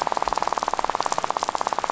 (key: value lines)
label: biophony, rattle
recorder: SoundTrap 500